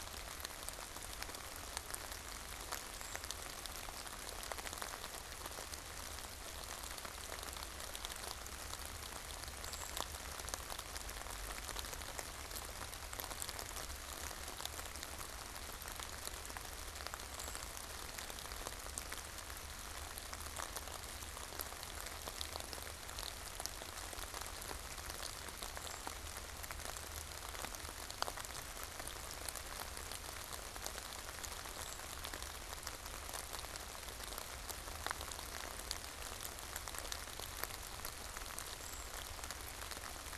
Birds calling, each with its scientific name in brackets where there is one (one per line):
Brown Creeper (Certhia americana)